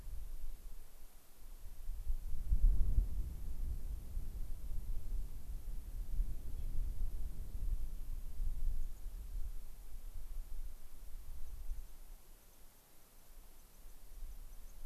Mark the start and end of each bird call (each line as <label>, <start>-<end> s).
White-crowned Sparrow (Zonotrichia leucophrys), 8.8-9.0 s
White-crowned Sparrow (Zonotrichia leucophrys), 11.4-14.7 s